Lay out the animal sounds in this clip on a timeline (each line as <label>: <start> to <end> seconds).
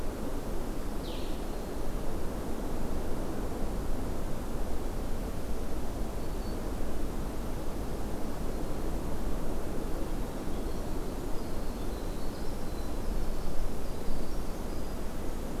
Blue-headed Vireo (Vireo solitarius): 0.9 to 1.5 seconds
Black-throated Green Warbler (Setophaga virens): 1.2 to 1.9 seconds
Black-throated Green Warbler (Setophaga virens): 6.0 to 6.7 seconds
Winter Wren (Troglodytes hiemalis): 10.2 to 15.6 seconds